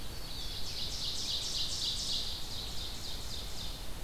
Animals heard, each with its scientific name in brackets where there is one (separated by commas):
Red-eyed Vireo (Vireo olivaceus), Black-throated Green Warbler (Setophaga virens), Ovenbird (Seiurus aurocapilla)